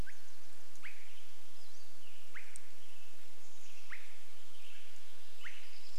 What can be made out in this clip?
Pacific-slope Flycatcher call, Swainson's Thrush call, Western Tanager song, warbler song